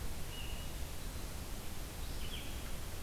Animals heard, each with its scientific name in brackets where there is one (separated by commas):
Red-eyed Vireo (Vireo olivaceus)